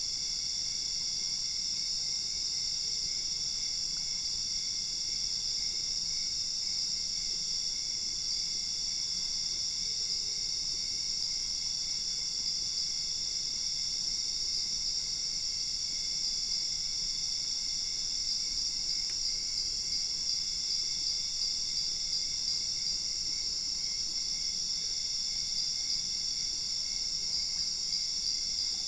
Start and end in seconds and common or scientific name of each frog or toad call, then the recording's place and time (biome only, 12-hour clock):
10.2	28.8	Dendropsophus cruzi
Cerrado, 1:15am